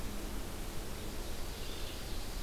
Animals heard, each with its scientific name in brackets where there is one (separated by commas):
Ovenbird (Seiurus aurocapilla)